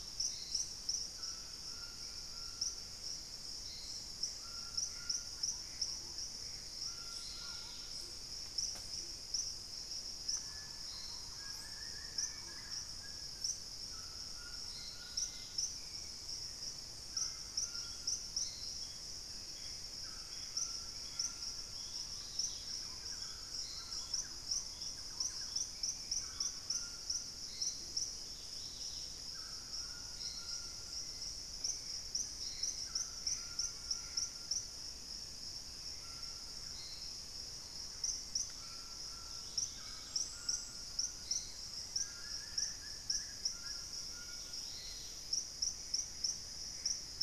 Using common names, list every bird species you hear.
Hauxwell's Thrush, White-throated Toucan, Gray Antbird, Purple-throated Fruitcrow, Dusky-capped Greenlet, Thrush-like Wren, Wing-barred Piprites, White-throated Woodpecker, Black-capped Becard